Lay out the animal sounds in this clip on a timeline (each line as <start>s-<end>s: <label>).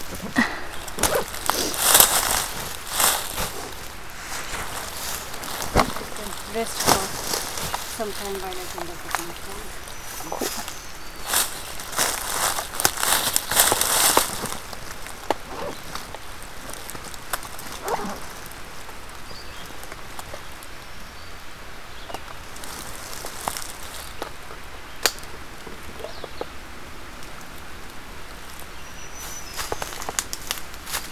9.7s-10.9s: Black-throated Green Warbler (Setophaga virens)
19.1s-19.8s: Red-eyed Vireo (Vireo olivaceus)
20.7s-21.6s: Black-capped Chickadee (Poecile atricapillus)
28.7s-30.2s: Black-throated Green Warbler (Setophaga virens)